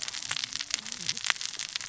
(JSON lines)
{"label": "biophony, cascading saw", "recorder": "SoundTrap 600 or HydroMoth"}